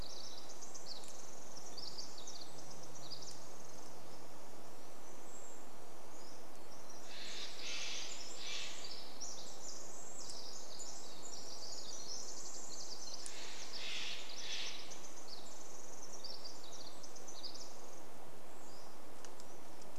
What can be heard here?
Pacific Wren song, Brown Creeper call, Steller's Jay call, Pacific-slope Flycatcher song